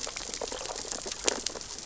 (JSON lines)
{"label": "biophony, sea urchins (Echinidae)", "recorder": "SoundTrap 600 or HydroMoth"}